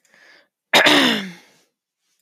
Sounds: Throat clearing